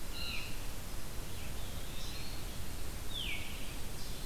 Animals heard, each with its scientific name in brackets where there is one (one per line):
Red-eyed Vireo (Vireo olivaceus)
Eastern Wood-Pewee (Contopus virens)
Veery (Catharus fuscescens)
Blue Jay (Cyanocitta cristata)